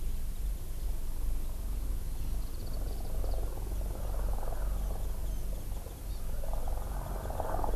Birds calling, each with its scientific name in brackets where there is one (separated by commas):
Warbling White-eye (Zosterops japonicus), Hawaii Amakihi (Chlorodrepanis virens)